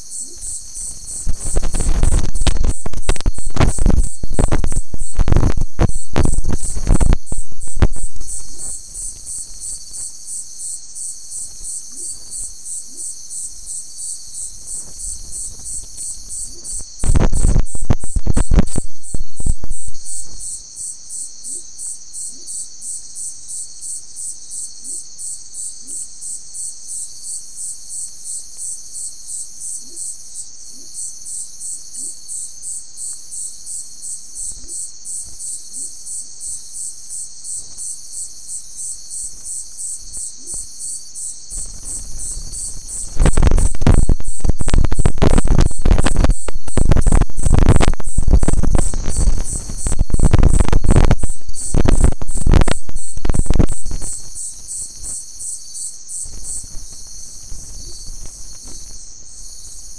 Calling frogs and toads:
none
2:30am

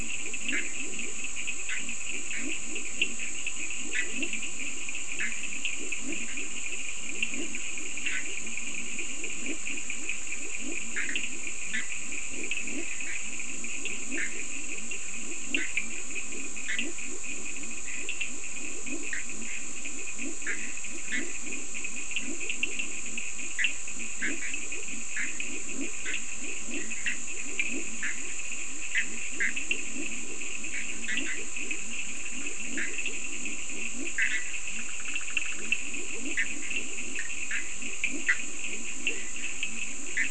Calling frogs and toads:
Boana bischoffi (Hylidae), Leptodactylus latrans (Leptodactylidae), Sphaenorhynchus surdus (Hylidae)
4:00am

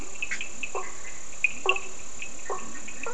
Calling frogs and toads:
Boana faber (Hylidae), Leptodactylus latrans (Leptodactylidae), Sphaenorhynchus surdus (Hylidae)
3:30am

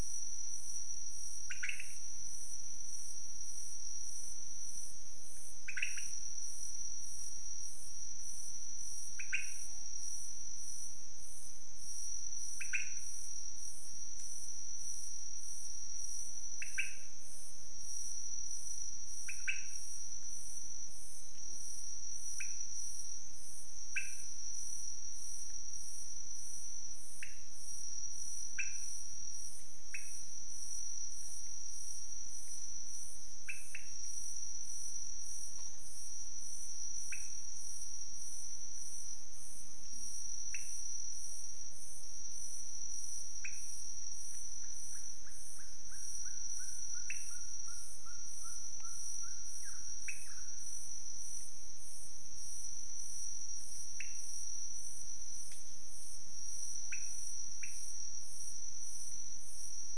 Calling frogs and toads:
Leptodactylus podicipinus (Leptodactylidae)
4:30am

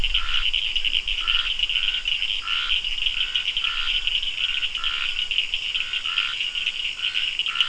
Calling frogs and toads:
Scinax perereca (Hylidae), Sphaenorhynchus surdus (Hylidae)
6:30pm

